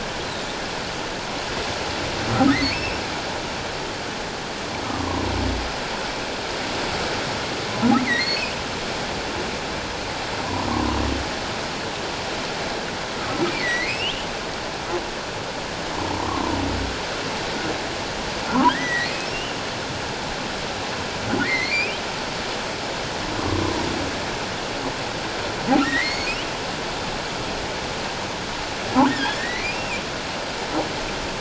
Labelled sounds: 2.5	3.0	humpback whale, 1.8 to 2.8 kHz
8.1	8.4	humpback whale, 1.8 to 4.5 kHz
10.4	10.7	humpback whale, 0.88 to 1.2 kHz
13.5	14.1	humpback whale, 1.8 to 3.4 kHz
16.2	16.5	humpback whale, 0.88 to 1.2 kHz
18.7	19.3	humpback whale, 1.4 to 2.6 kHz
21.4	22.0	humpback whale, 1.7 to 4.6 kHz
25.8	26.4	humpback whale, 1.8 to 4.5 kHz
29.4	30.0	humpback whale, 1.7 to 2.8 kHz

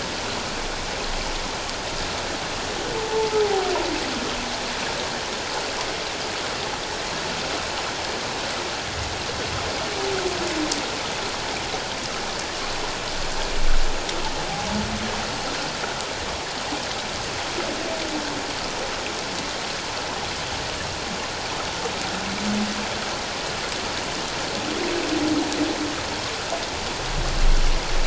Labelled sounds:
2.9	3.7	humpback whale, 0.78 to 0.94 kHz

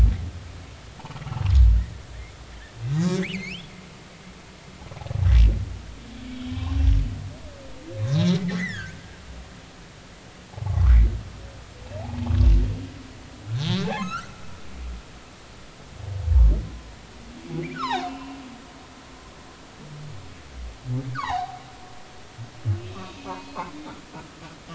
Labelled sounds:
3.2	3.7	humpback whale, 1.7 to 3.6 kHz
6.5	6.7	humpback whale, 0.80 to 1.2 kHz
8.1	9.0	humpback whale, 1.2 to 4.3 kHz
10.5	11.0	humpback whale, 0.80 to 1.7 kHz
14.0	14.4	humpback whale, 0.96 to 1.6 kHz
17.7	18.4	humpback whale, 0.80 to 4.2 kHz
21.1	21.6	humpback whale, 0.80 to 1.8 kHz
23.1	23.7	humpback whale, 0.86 to 2.8 kHz

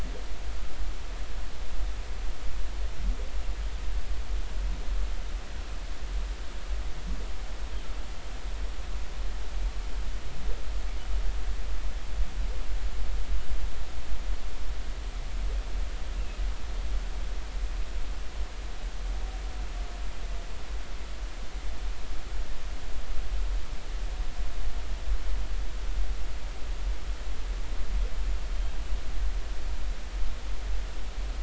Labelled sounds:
16.1	16.4	humpback whale, 2.5 to 2.8 kHz

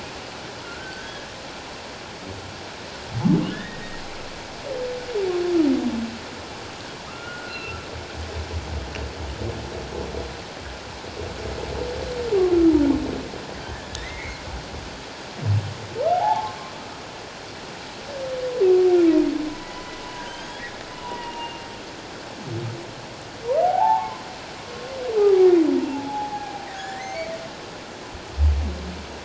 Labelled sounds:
0.6	1.3	humpback whale, 1.3 to 1.8 kHz
3.5	4.0	humpback whale, 1.7 to 1.9 kHz
7.1	7.8	humpback whale, 1.0 to 2.8 kHz
13.9	14.4	humpback whale, 1.7 to 2.3 kHz
16.1	16.5	humpback whale, 0.78 to 0.94 kHz
19.5	21.7	humpback whale, 0.84 to 3.4 kHz
23.6	24.2	humpback whale, 0.78 to 1.2 kHz
25.2	27.3	humpback whale, 0.78 to 2.3 kHz

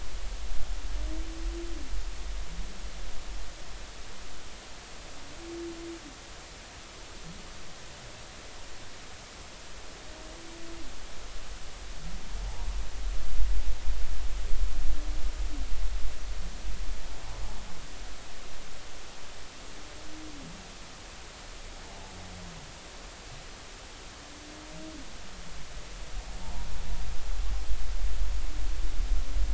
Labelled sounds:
26.4	26.7	humpback whale, 0.80 to 0.99 kHz

